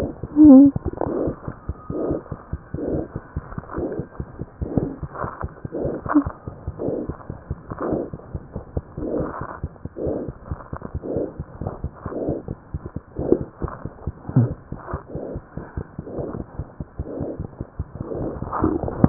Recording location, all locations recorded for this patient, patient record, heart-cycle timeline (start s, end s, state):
tricuspid valve (TV)
aortic valve (AV)+pulmonary valve (PV)+tricuspid valve (TV)+mitral valve (MV)
#Age: Infant
#Sex: Male
#Height: 60.0 cm
#Weight: 8.85 kg
#Pregnancy status: False
#Murmur: Absent
#Murmur locations: nan
#Most audible location: nan
#Systolic murmur timing: nan
#Systolic murmur shape: nan
#Systolic murmur grading: nan
#Systolic murmur pitch: nan
#Systolic murmur quality: nan
#Diastolic murmur timing: nan
#Diastolic murmur shape: nan
#Diastolic murmur grading: nan
#Diastolic murmur pitch: nan
#Diastolic murmur quality: nan
#Outcome: Normal
#Campaign: 2015 screening campaign
0.00	7.07	unannotated
7.07	7.15	S1
7.15	7.28	systole
7.28	7.33	S2
7.33	7.48	diastole
7.48	7.55	S1
7.55	7.69	systole
7.69	7.75	S2
7.75	7.90	diastole
7.90	7.96	S1
7.96	8.12	systole
8.12	8.17	S2
8.17	8.32	diastole
8.32	8.39	S1
8.39	8.53	systole
8.53	8.60	S2
8.60	8.73	diastole
8.73	8.82	S1
8.82	8.94	systole
8.94	9.03	S2
9.03	9.17	diastole
9.17	9.25	S1
9.25	9.39	systole
9.39	9.44	S2
9.44	9.61	diastole
9.61	9.68	S1
9.68	9.82	systole
9.82	9.89	S2
9.89	10.04	diastole
10.04	10.12	S1
10.12	10.26	systole
10.26	10.32	S2
10.32	10.49	diastole
10.49	10.56	S1
10.56	10.70	systole
10.70	10.77	S2
10.77	10.93	diastole
10.93	10.99	S1
10.99	19.09	unannotated